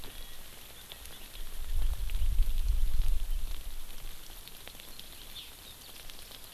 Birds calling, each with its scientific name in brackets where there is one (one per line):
Erckel's Francolin (Pternistis erckelii)
Hawaii Amakihi (Chlorodrepanis virens)